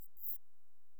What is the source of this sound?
Antaxius kraussii, an orthopteran